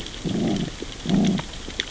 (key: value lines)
label: biophony, growl
recorder: SoundTrap 600 or HydroMoth